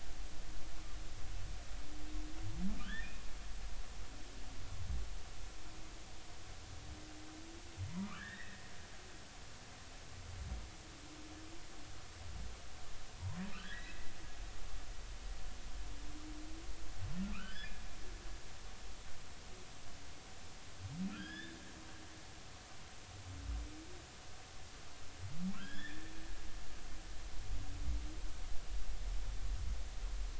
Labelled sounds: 2.8	3.1	humpback whale, 1.3 to 3.7 kHz
7.9	8.6	humpback whale, 0.93 to 3.8 kHz
13.5	14.1	humpback whale, 1.2 to 2.1 kHz
17.3	17.8	humpback whale, 1.1 to 3.6 kHz
21.1	21.6	humpback whale, 1.3 to 5.2 kHz
25.5	26.1	humpback whale, 1.2 to 3.6 kHz

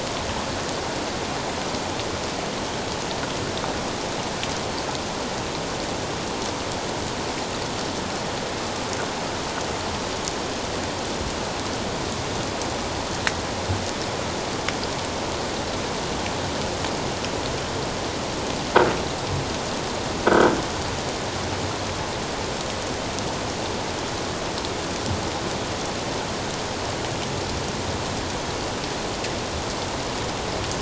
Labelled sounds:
20.3	20.5	croaking sound likely from a nearby submerged object, 1.4 to 1.7 kHz

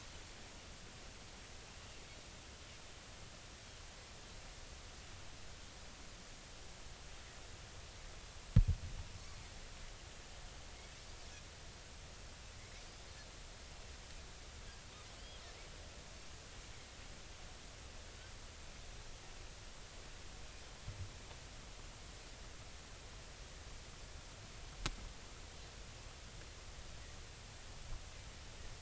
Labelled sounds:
15.2	15.4	Pacific white-sided dolphin, 2.9 to 3.4 kHz

